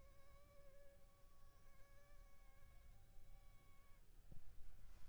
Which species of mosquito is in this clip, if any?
Anopheles funestus s.s.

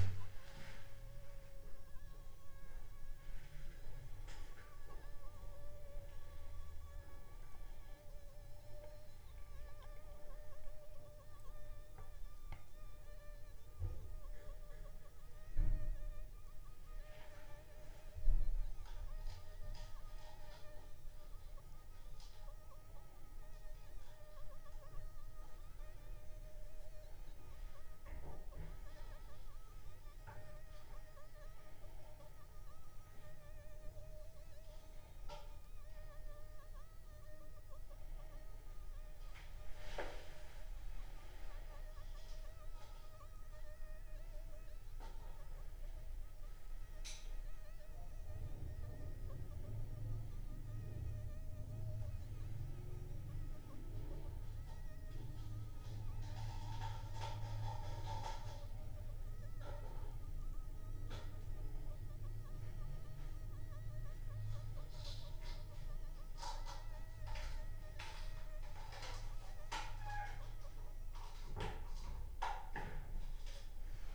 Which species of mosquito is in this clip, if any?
Anopheles funestus s.s.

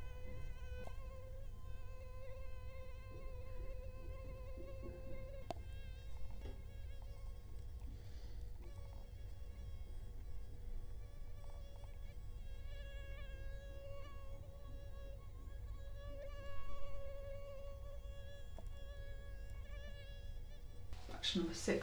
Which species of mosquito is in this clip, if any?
Culex quinquefasciatus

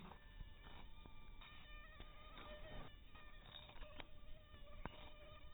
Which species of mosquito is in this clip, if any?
mosquito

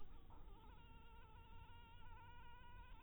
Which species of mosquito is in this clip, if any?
mosquito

